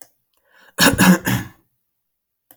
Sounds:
Cough